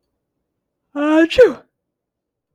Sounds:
Sneeze